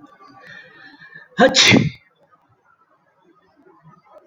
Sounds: Sneeze